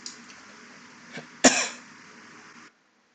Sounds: Cough